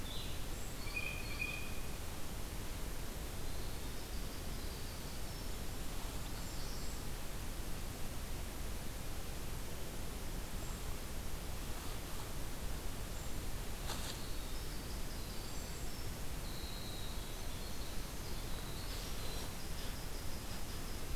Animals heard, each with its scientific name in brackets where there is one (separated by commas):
Winter Wren (Troglodytes hiemalis), Blue Jay (Cyanocitta cristata), Blue-headed Vireo (Vireo solitarius)